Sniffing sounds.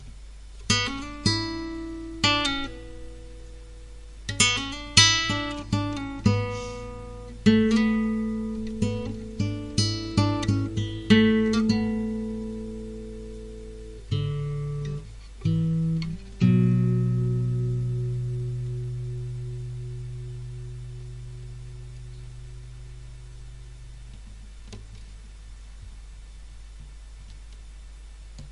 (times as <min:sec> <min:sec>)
0:06.5 0:07.1